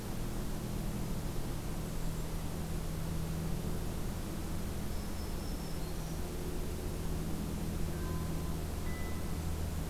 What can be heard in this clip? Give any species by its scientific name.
Regulus satrapa, Setophaga virens